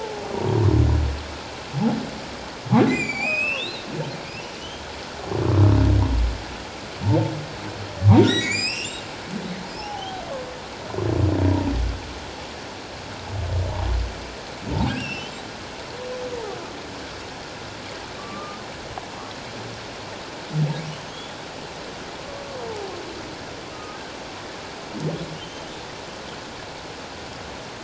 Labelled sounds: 0.3	0.6	humpback whale, 0.91 to 1.0 kHz
2.9	3.9	humpback whale, 1.9 to 8.0 kHz
4.6	4.9	humpback whale, 2.8 to 3.3 kHz
8.0	9.1	humpback whale, 0.88 to 7.9 kHz
9.8	10.2	humpback whale, 0.78 to 3.3 kHz
14.9	15.4	humpback whale, 1.4 to 5.7 kHz
18.2	18.6	humpback whale, 1.1 to 1.3 kHz
23.7	24.0	humpback whale, 1.2 to 1.3 kHz
25.4	25.6	humpback whale, 3.0 to 3.2 kHz

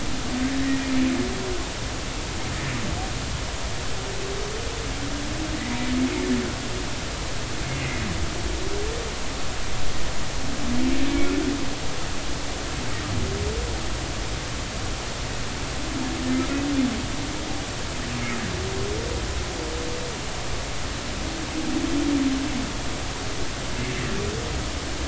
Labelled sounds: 0.5	0.8	humpback whale, 1.7 to 2.0 kHz
7.8	8.0	humpback whale, 1.9 to 2.2 kHz

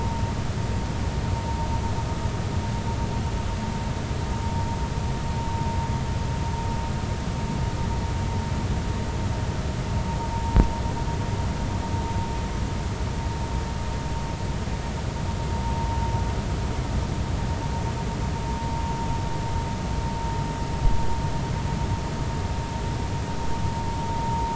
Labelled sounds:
10.3	10.6	vessel noise, 0.83 to 0.96 kHz

